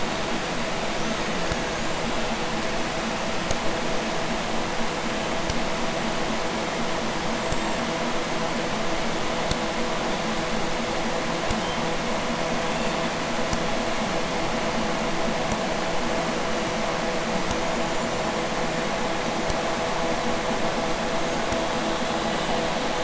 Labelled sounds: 0.8	2.4	killer whale, Bigg's (transient), 0.83 to 7.6 kHz
7.3	7.9	killer whale, Bigg's (transient), 6.9 to 7.9 kHz
11.3	11.9	killer whale, Bigg's (transient), 2.5 to 5.3 kHz
12.5	13.2	killer whale, Bigg's (transient), 1.7 to 7.3 kHz
16.2	16.9	killer whale, Bigg's (transient), 2.2 to 7.4 kHz
17.5	19.0	killer whale, Bigg's (transient), 2.2 to 7.5 kHz
21.0	22.8	killer whale, Bigg's (transient), 1.1 to 7.9 kHz

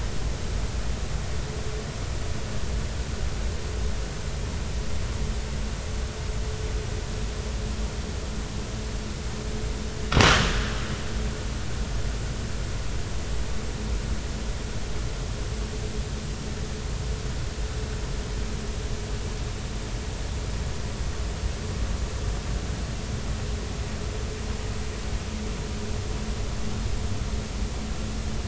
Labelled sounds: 10.5	10.7	abiotic sound, 1.5 to 1.8 kHz

